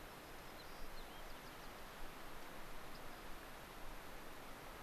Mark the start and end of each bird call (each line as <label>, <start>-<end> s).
White-crowned Sparrow (Zonotrichia leucophrys), 0.0-1.7 s
Rock Wren (Salpinctes obsoletus), 2.9-3.2 s